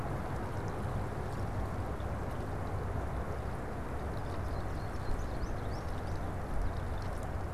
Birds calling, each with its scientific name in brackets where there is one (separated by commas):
American Goldfinch (Spinus tristis)